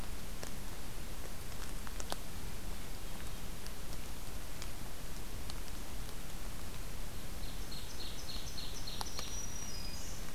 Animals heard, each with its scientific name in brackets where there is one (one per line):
Ovenbird (Seiurus aurocapilla)
Black-throated Green Warbler (Setophaga virens)